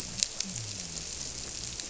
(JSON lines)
{"label": "biophony", "recorder": "SoundTrap 300"}